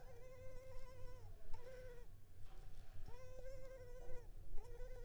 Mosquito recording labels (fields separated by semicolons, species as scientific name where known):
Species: Culex pipiens complex; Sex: female; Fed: unfed; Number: one; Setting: cup